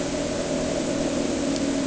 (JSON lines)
{"label": "anthrophony, boat engine", "recorder": "HydroMoth"}